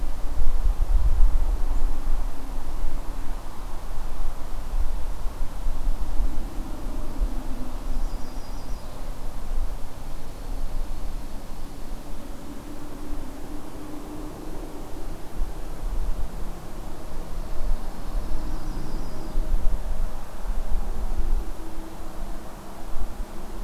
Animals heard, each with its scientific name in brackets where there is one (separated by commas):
Dark-eyed Junco (Junco hyemalis), Yellow-rumped Warbler (Setophaga coronata)